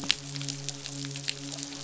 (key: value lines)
label: biophony, midshipman
recorder: SoundTrap 500